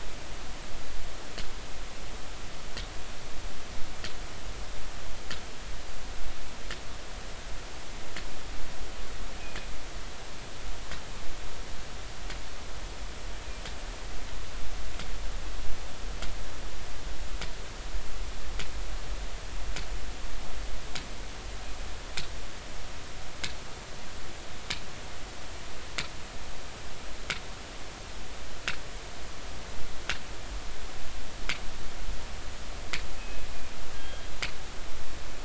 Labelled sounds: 33.2	33.5	killer whale, northern resident, G clan, call N24ii, 2.5 to 2.7 kHz
33.9	34.3	killer whale, northern resident, G clan, call N24ii, 1.6 to 3.4 kHz

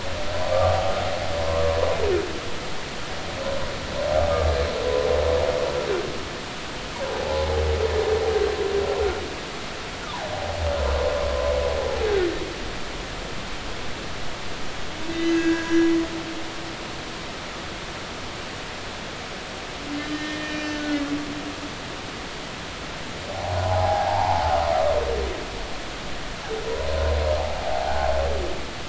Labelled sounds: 0.5	0.8	humpback whale, 1.1 to 1.3 kHz
7.2	7.4	humpback whale, 0.80 to 0.93 kHz
15.1	15.9	humpback whale, 1.5 to 6.4 kHz
20.0	21.0	humpback whale, 1.3 to 6.0 kHz
23.4	24.6	humpback whale, 0.80 to 1.1 kHz
27.7	28.1	humpback whale, 0.80 to 0.90 kHz

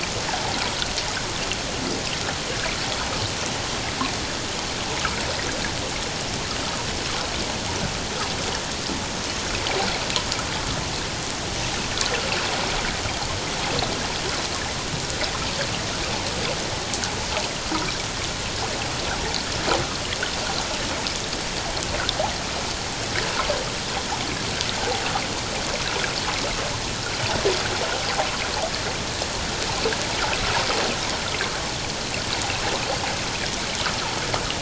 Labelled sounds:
24.8	25.0	water noise, 0.78 to 0.94 kHz

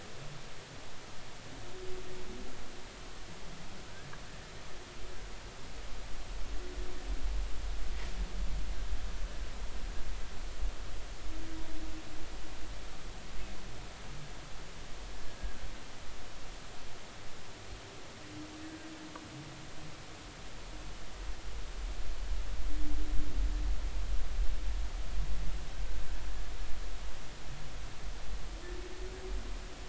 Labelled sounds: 15.3	15.6	humpback whale, 1.5 to 1.8 kHz

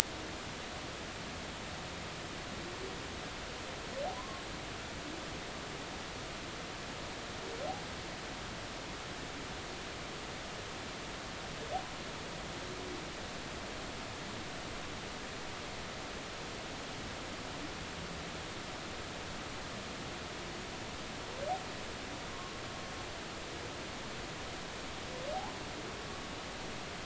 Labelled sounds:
4.1	4.4	humpback whale, 0.96 to 1.2 kHz
22.3	22.6	humpback whale, 1.0 to 1.2 kHz

